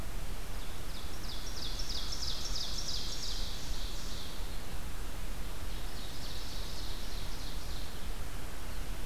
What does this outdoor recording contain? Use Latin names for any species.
Seiurus aurocapilla